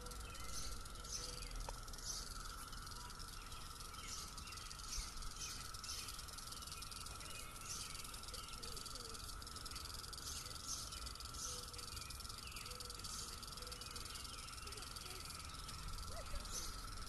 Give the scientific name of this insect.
Magicicada cassini